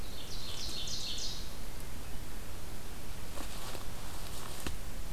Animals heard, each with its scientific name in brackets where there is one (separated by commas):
Ovenbird (Seiurus aurocapilla)